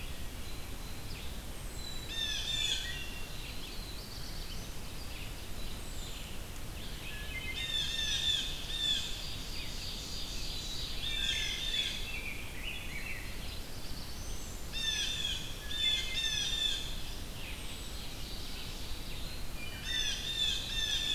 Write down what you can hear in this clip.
Red-eyed Vireo, Wood Thrush, Black-capped Chickadee, Blue Jay, Black-throated Blue Warbler, Ovenbird, Rose-breasted Grosbeak